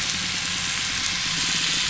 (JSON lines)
{"label": "biophony", "recorder": "SoundTrap 500"}
{"label": "anthrophony, boat engine", "recorder": "SoundTrap 500"}